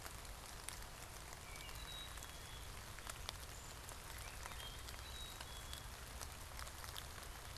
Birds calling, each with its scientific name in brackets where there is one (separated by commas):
unidentified bird, Black-capped Chickadee (Poecile atricapillus), Wood Thrush (Hylocichla mustelina)